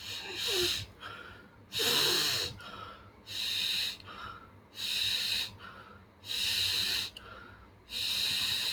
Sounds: Sigh